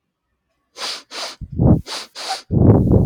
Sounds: Sniff